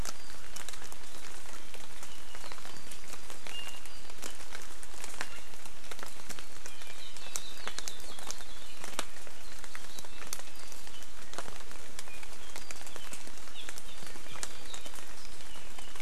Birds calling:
Apapane (Himatione sanguinea), Hawaii Akepa (Loxops coccineus)

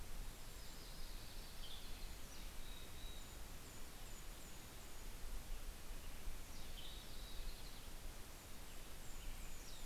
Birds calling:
Western Tanager (Piranga ludoviciana), Yellow-rumped Warbler (Setophaga coronata), Golden-crowned Kinglet (Regulus satrapa), American Robin (Turdus migratorius), Mountain Chickadee (Poecile gambeli), Red-breasted Nuthatch (Sitta canadensis)

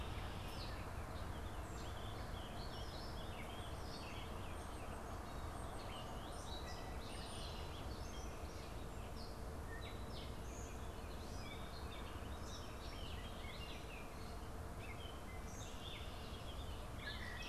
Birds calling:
Gray Catbird (Dumetella carolinensis), Warbling Vireo (Vireo gilvus), Red-winged Blackbird (Agelaius phoeniceus)

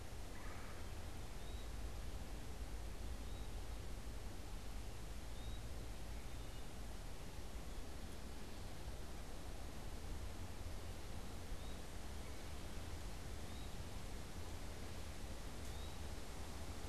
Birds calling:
Wood Thrush (Hylocichla mustelina), Eastern Wood-Pewee (Contopus virens), Red-bellied Woodpecker (Melanerpes carolinus)

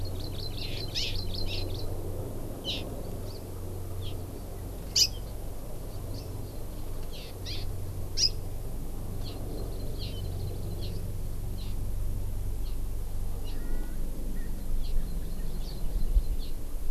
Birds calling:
Erckel's Francolin (Pternistis erckelii), Hawaii Amakihi (Chlorodrepanis virens)

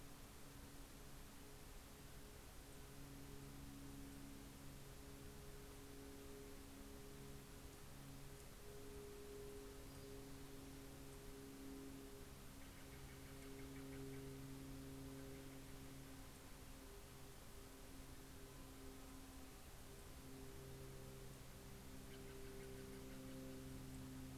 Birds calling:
Steller's Jay (Cyanocitta stelleri)

